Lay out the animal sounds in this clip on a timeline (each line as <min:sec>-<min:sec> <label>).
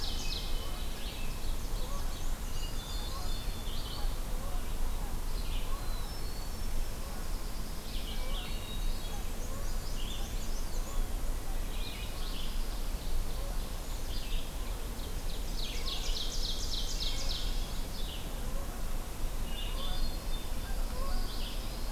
0:00.0-0:02.1 Ovenbird (Seiurus aurocapilla)
0:00.0-0:09.8 Canada Goose (Branta canadensis)
0:00.0-0:16.3 Red-eyed Vireo (Vireo olivaceus)
0:01.6-0:03.5 Black-and-white Warbler (Mniotilta varia)
0:02.4-0:03.7 Eastern Wood-Pewee (Contopus virens)
0:05.7-0:06.9 Hermit Thrush (Catharus guttatus)
0:06.6-0:08.1 Pine Warbler (Setophaga pinus)
0:08.1-0:09.2 Hermit Thrush (Catharus guttatus)
0:08.8-0:10.7 Black-and-white Warbler (Mniotilta varia)
0:11.4-0:21.9 Canada Goose (Branta canadensis)
0:12.1-0:13.9 Ovenbird (Seiurus aurocapilla)
0:13.5-0:14.5 Hermit Thrush (Catharus guttatus)
0:14.8-0:17.5 Ovenbird (Seiurus aurocapilla)
0:17.7-0:21.9 Red-eyed Vireo (Vireo olivaceus)
0:19.5-0:20.6 Hermit Thrush (Catharus guttatus)
0:20.2-0:21.9 Pine Warbler (Setophaga pinus)
0:21.0-0:21.9 Eastern Wood-Pewee (Contopus virens)